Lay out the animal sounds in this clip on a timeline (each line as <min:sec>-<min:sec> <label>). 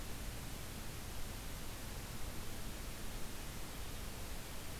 0:03.3-0:04.2 Hermit Thrush (Catharus guttatus)